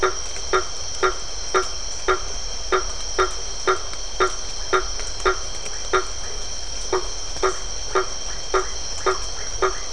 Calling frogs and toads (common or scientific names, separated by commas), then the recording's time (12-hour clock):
blacksmith tree frog
8:45pm